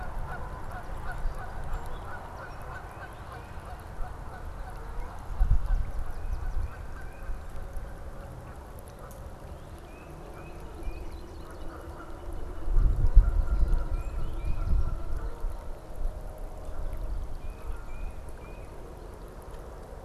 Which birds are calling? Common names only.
Canada Goose, Tufted Titmouse, American Goldfinch